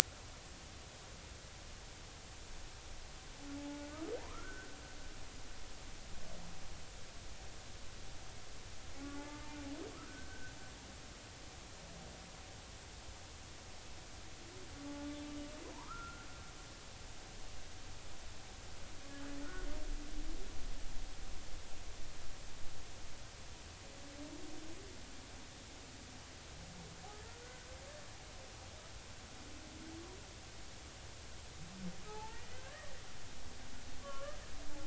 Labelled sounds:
3.6	4.8	humpback whale, 0.80 to 1.6 kHz
9.2	9.6	humpback whale, 0.83 to 0.96 kHz
10.0	10.5	humpback whale, 1.4 to 1.6 kHz
15.7	16.3	humpback whale, 0.86 to 1.6 kHz
19.4	19.7	humpback whale, 1.3 to 1.5 kHz
27.4	27.7	humpback whale, 1.4 to 1.6 kHz
32.1	32.9	humpback whale, 0.80 to 2.0 kHz
34.0	34.4	humpback whale, 1.0 to 1.3 kHz

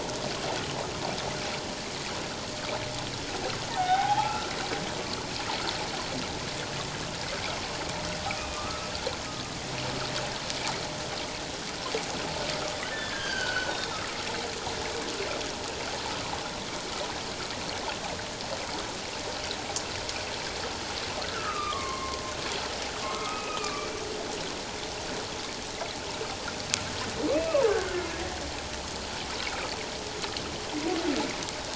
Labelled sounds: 3.7	5.3	humpback whale, 0.78 to 3.8 kHz
8.5	8.9	humpback whale, 0.97 to 1.3 kHz
12.9	14.0	humpback whale, 1.3 to 3.8 kHz
21.3	22.2	humpback whale, 0.94 to 2.2 kHz
23.1	23.9	humpback whale, 1.1 to 2.7 kHz
27.3	28.1	humpback whale, 0.78 to 2.7 kHz

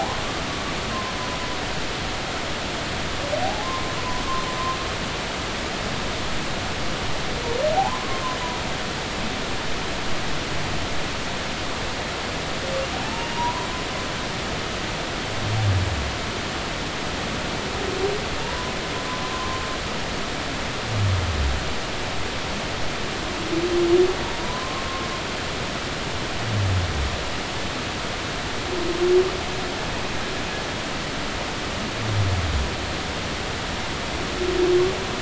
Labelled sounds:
3.4	4.0	humpback whale, 0.80 to 1.1 kHz
7.7	8.2	humpback whale, 0.80 to 1.1 kHz
13.0	13.7	humpback whale, 0.80 to 1.1 kHz
18.4	18.7	humpback whale, 0.86 to 1.1 kHz
19.3	19.7	humpback whale, 0.99 to 1.1 kHz
24.4	24.9	humpback whale, 0.93 to 1.1 kHz

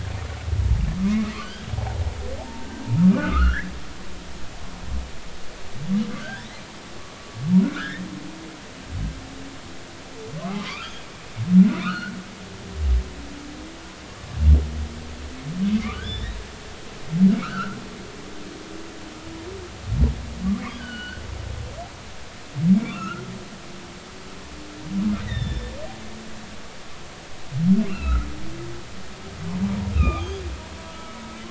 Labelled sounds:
1.1	2.0	humpback whale, 0.80 to 3.3 kHz
2.4	3.7	humpback whale, 0.80 to 2.2 kHz
6.2	6.5	humpback whale, 1.4 to 1.9 kHz
7.6	8.0	humpback whale, 1.2 to 2.2 kHz
10.6	10.9	humpback whale, 0.96 to 1.4 kHz
11.7	12.1	humpback whale, 0.93 to 3.0 kHz
15.9	16.4	humpback whale, 1.4 to 3.9 kHz
17.3	17.8	humpback whale, 1.1 to 3.1 kHz
20.7	21.2	humpback whale, 1.4 to 4.5 kHz
22.8	23.2	humpback whale, 1.0 to 2.9 kHz
25.2	25.7	humpback whale, 1.7 to 5.4 kHz
27.9	28.3	humpback whale, 1.2 to 2.8 kHz
29.9	30.4	humpback whale, 1.1 to 3.9 kHz
30.9	31.2	humpback whale, 1.2 to 1.4 kHz

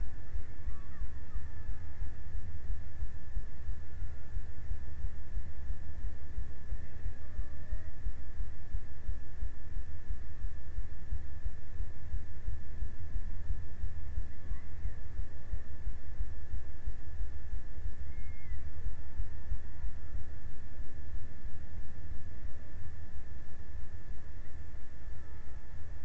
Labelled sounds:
6.6	8.4	killer whale, Bigg's (transient), 0.45 to 2.4 kHz
17.5	20.2	killer whale, Bigg's (transient), 0.70 to 2.4 kHz

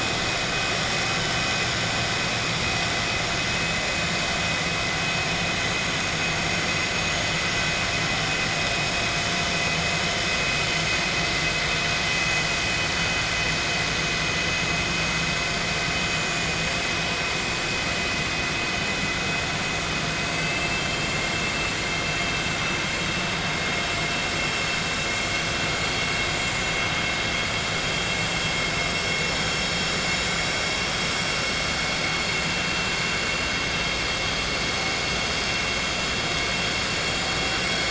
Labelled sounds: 20.3	21.0	vessel noise, 2.1 to 3.2 kHz

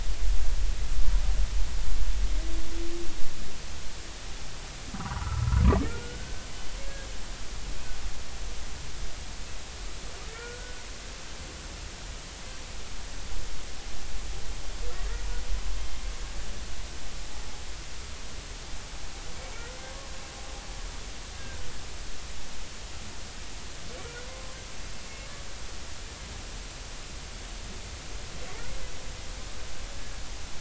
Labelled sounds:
4.9	6.5	humpback whale, 0.80 to 1.6 kHz
10.3	10.8	humpback whale, 1.3 to 1.5 kHz
21.4	21.7	humpback whale, 1.5 to 1.7 kHz

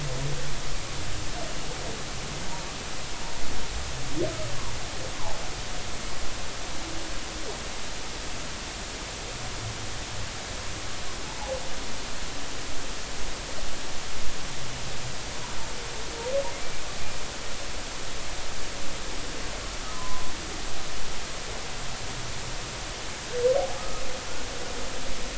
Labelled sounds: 6.1	6.4	humpback whale, 0.80 to 1.1 kHz
19.9	20.3	humpback whale, 0.96 to 1.1 kHz
23.8	24.0	humpback whale, 1.2 to 1.3 kHz

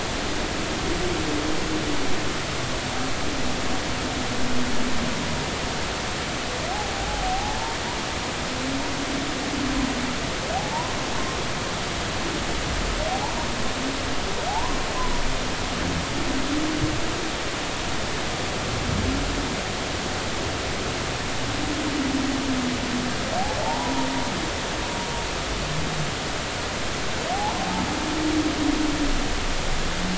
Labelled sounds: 6.9	7.8	humpback whale, 0.80 to 1.1 kHz
10.6	10.9	humpback whale, 0.80 to 1.1 kHz
13.1	13.3	humpback whale, 0.80 to 1.0 kHz
14.5	14.8	humpback whale, 0.80 to 1.1 kHz
23.6	24.1	humpback whale, 0.80 to 1.0 kHz
27.3	27.6	humpback whale, 0.80 to 1.0 kHz

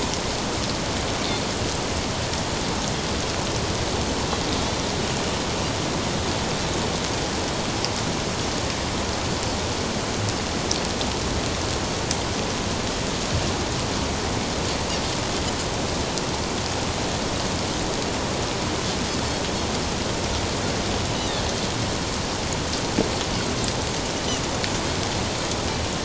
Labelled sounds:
21.2	21.5	Pacific white-sided dolphin, 3.4 to 4.0 kHz

